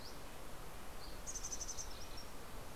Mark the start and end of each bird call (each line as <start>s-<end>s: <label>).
0.0s-1.3s: Dusky Flycatcher (Empidonax oberholseri)
0.0s-2.5s: Red-breasted Nuthatch (Sitta canadensis)
1.2s-2.1s: Mountain Chickadee (Poecile gambeli)
1.4s-2.7s: MacGillivray's Warbler (Geothlypis tolmiei)